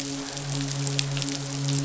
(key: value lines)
label: biophony, midshipman
recorder: SoundTrap 500